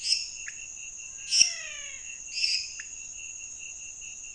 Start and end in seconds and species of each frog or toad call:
0.0	3.0	Dendropsophus minutus
0.4	0.8	Leptodactylus podicipinus
1.1	2.4	Physalaemus albonotatus
2.7	3.0	Leptodactylus podicipinus
Brazil, 11:30pm

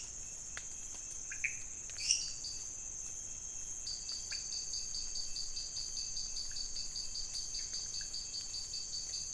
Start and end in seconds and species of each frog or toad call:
1.2	1.6	Leptodactylus podicipinus
2.0	2.5	Dendropsophus minutus
2.3	2.7	Dendropsophus nanus
3.7	9.3	Dendropsophus nanus
4.3	4.6	Leptodactylus podicipinus
Brazil, 2am

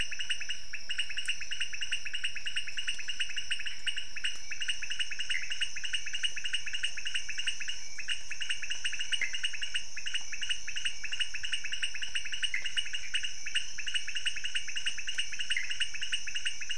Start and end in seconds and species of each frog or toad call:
0.0	16.7	Leptodactylus podicipinus
5.3	5.5	Pithecopus azureus
9.2	9.3	Pithecopus azureus
12.5	12.7	Pithecopus azureus
15.5	15.7	Pithecopus azureus
Brazil, midnight

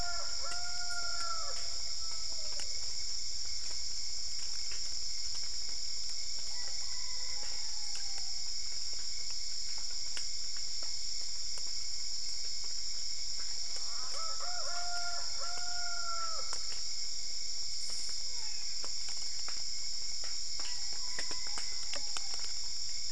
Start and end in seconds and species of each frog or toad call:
18.2	19.0	Physalaemus marmoratus
Brazil, ~4am

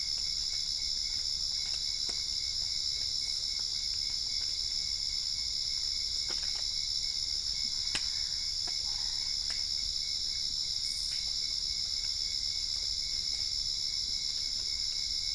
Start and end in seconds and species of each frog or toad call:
7.6	9.4	Boana albopunctata
Brazil, ~8pm

